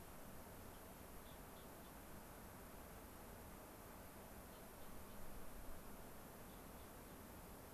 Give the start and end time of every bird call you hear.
1.0s-2.0s: Gray-crowned Rosy-Finch (Leucosticte tephrocotis)
4.4s-5.2s: Gray-crowned Rosy-Finch (Leucosticte tephrocotis)
6.4s-7.1s: Gray-crowned Rosy-Finch (Leucosticte tephrocotis)

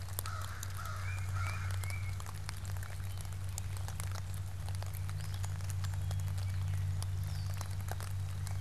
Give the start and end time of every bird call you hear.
0.0s-2.0s: American Crow (Corvus brachyrhynchos)
0.9s-2.5s: Tufted Titmouse (Baeolophus bicolor)
4.9s-8.1s: Gray Catbird (Dumetella carolinensis)

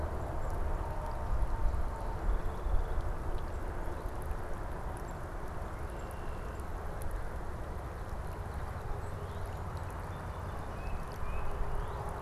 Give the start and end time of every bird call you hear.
1.1s-3.1s: Song Sparrow (Melospiza melodia)
5.5s-6.8s: Red-winged Blackbird (Agelaius phoeniceus)
8.1s-12.2s: Song Sparrow (Melospiza melodia)
8.9s-9.6s: Northern Cardinal (Cardinalis cardinalis)
10.5s-11.6s: Tufted Titmouse (Baeolophus bicolor)
11.5s-12.1s: Northern Cardinal (Cardinalis cardinalis)

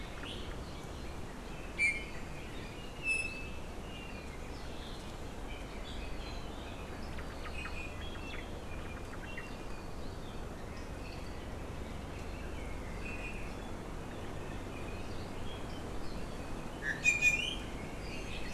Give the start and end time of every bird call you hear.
1.7s-2.2s: Iiwi (Drepanis coccinea)
2.7s-3.6s: Iiwi (Drepanis coccinea)
7.1s-7.7s: Omao (Myadestes obscurus)
7.5s-8.5s: Iiwi (Drepanis coccinea)
8.7s-9.4s: Omao (Myadestes obscurus)
9.2s-9.9s: Iiwi (Drepanis coccinea)
13.0s-13.5s: Iiwi (Drepanis coccinea)
16.8s-17.6s: Iiwi (Drepanis coccinea)

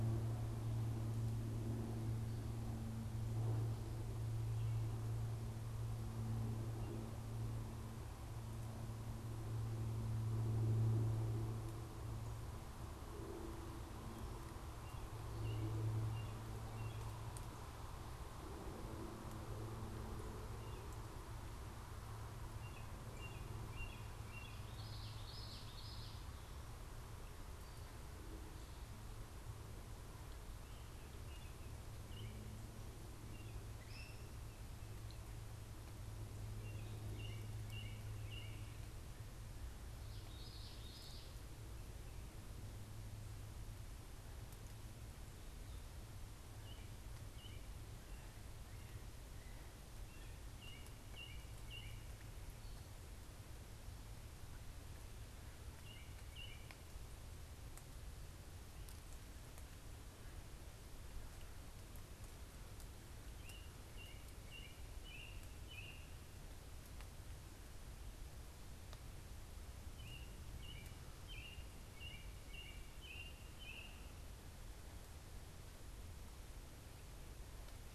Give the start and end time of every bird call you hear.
14.6s-17.2s: American Robin (Turdus migratorius)
20.3s-24.7s: American Robin (Turdus migratorius)
24.6s-26.2s: Common Yellowthroat (Geothlypis trichas)
31.1s-33.8s: American Robin (Turdus migratorius)
33.7s-34.3s: Great Crested Flycatcher (Myiarchus crinitus)
36.3s-38.6s: American Robin (Turdus migratorius)
40.0s-41.4s: Common Yellowthroat (Geothlypis trichas)
46.5s-47.7s: American Robin (Turdus migratorius)
49.6s-52.2s: American Robin (Turdus migratorius)
55.7s-56.7s: American Robin (Turdus migratorius)
63.3s-66.2s: American Robin (Turdus migratorius)
69.7s-74.1s: American Robin (Turdus migratorius)

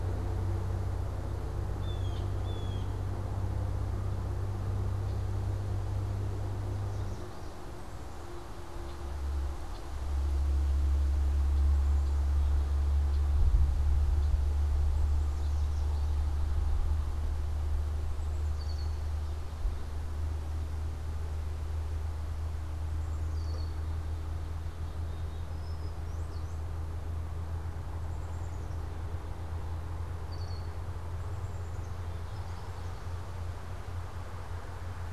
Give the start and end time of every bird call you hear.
1.5s-3.2s: Blue Jay (Cyanocitta cristata)
6.4s-7.7s: Yellow Warbler (Setophaga petechia)
8.7s-13.4s: Red-winged Blackbird (Agelaius phoeniceus)
15.0s-16.1s: Yellow Warbler (Setophaga petechia)
18.0s-19.0s: Red-winged Blackbird (Agelaius phoeniceus)
23.0s-23.9s: Red-winged Blackbird (Agelaius phoeniceus)
25.3s-27.0s: Brown-headed Cowbird (Molothrus ater)
28.0s-32.3s: Black-capped Chickadee (Poecile atricapillus)
30.1s-30.8s: Red-winged Blackbird (Agelaius phoeniceus)

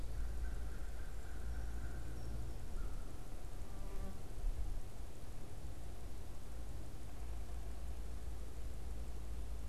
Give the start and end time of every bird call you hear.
0.0s-3.2s: American Crow (Corvus brachyrhynchos)
7.0s-7.9s: Yellow-bellied Sapsucker (Sphyrapicus varius)

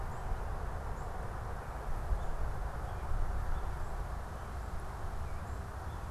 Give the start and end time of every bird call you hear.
0.0s-6.1s: unidentified bird
1.7s-6.1s: American Robin (Turdus migratorius)

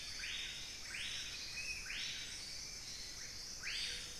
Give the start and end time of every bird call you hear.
0.0s-2.2s: Spot-winged Antshrike (Pygiptila stellaris)
0.0s-4.2s: Screaming Piha (Lipaugus vociferans)

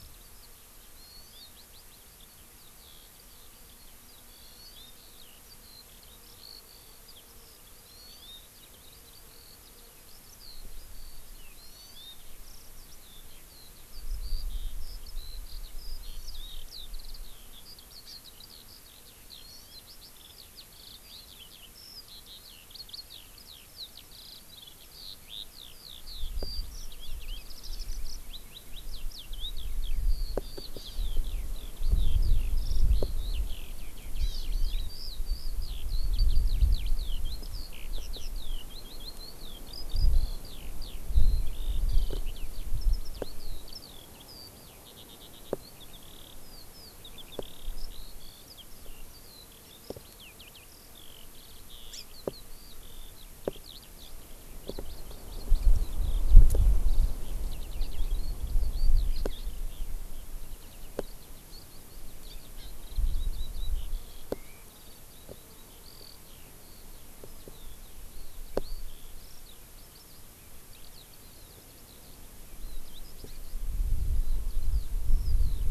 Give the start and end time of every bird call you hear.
0.0s-75.7s: Eurasian Skylark (Alauda arvensis)
4.4s-4.9s: Hawaii Amakihi (Chlorodrepanis virens)
11.5s-12.2s: Hawaii Amakihi (Chlorodrepanis virens)
16.0s-16.5s: Hawaii Amakihi (Chlorodrepanis virens)
30.8s-31.0s: Hawaii Amakihi (Chlorodrepanis virens)
34.2s-34.9s: Hawaii Amakihi (Chlorodrepanis virens)
51.9s-52.0s: House Finch (Haemorhous mexicanus)

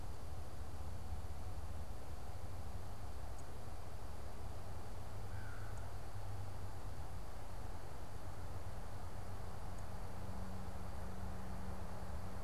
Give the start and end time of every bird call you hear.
5.1s-6.1s: American Crow (Corvus brachyrhynchos)

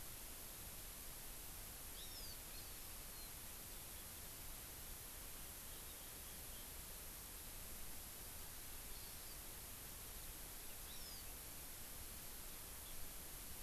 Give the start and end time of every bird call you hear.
1.9s-2.9s: Hawaii Amakihi (Chlorodrepanis virens)
8.9s-9.3s: Hawaii Amakihi (Chlorodrepanis virens)
10.8s-11.3s: Hawaii Amakihi (Chlorodrepanis virens)

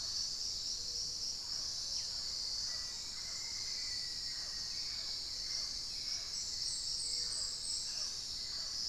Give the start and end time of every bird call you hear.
0.0s-8.9s: Hauxwell's Thrush (Turdus hauxwelli)
0.0s-8.9s: Mealy Parrot (Amazona farinosa)
2.2s-5.0s: Black-faced Antthrush (Formicarius analis)

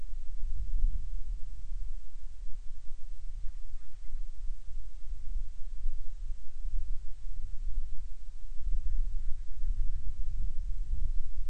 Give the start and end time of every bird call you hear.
8.8s-10.2s: Band-rumped Storm-Petrel (Hydrobates castro)

